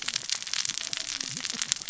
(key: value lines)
label: biophony, cascading saw
recorder: SoundTrap 600 or HydroMoth